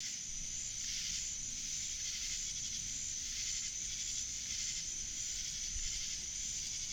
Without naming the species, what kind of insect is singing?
orthopteran